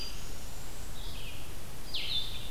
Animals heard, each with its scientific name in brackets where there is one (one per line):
unidentified call
Blue-headed Vireo (Vireo solitarius)
Red-eyed Vireo (Vireo olivaceus)